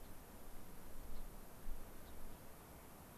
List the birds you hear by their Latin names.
Leucosticte tephrocotis